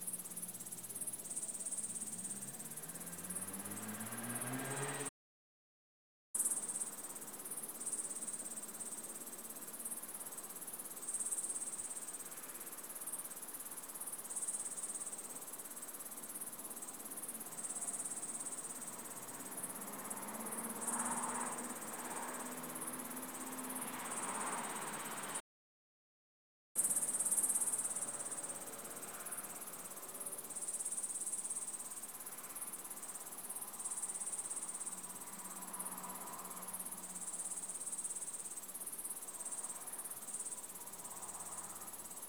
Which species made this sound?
Tettigonia cantans